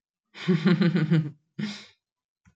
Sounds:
Laughter